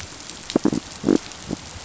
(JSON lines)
{"label": "biophony", "recorder": "SoundTrap 500"}